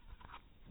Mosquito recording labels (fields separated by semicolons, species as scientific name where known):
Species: mosquito; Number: one; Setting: cup